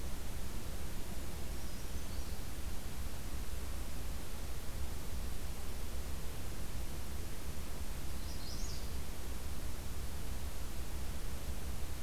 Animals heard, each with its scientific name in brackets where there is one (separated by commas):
Brown Creeper (Certhia americana), Magnolia Warbler (Setophaga magnolia)